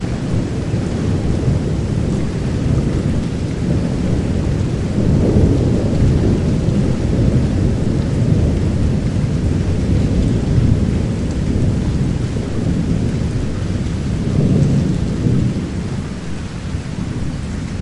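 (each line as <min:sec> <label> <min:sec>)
0:00.0 Storm with rain and rolling thunder. 0:17.8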